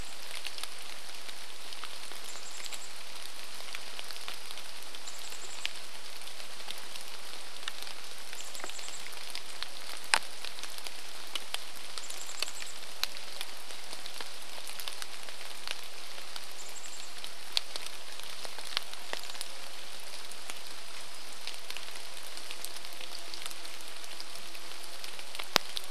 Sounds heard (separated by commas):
chainsaw, rain, Chestnut-backed Chickadee call